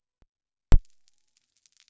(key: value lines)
label: biophony
recorder: SoundTrap 300